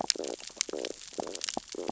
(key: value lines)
label: biophony, stridulation
recorder: SoundTrap 600 or HydroMoth